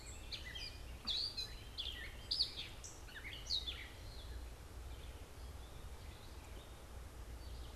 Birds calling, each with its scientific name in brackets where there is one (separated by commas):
Northern Waterthrush (Parkesia noveboracensis), Gray Catbird (Dumetella carolinensis)